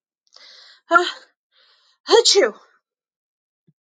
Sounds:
Sneeze